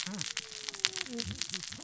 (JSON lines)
{"label": "biophony, cascading saw", "recorder": "SoundTrap 600 or HydroMoth"}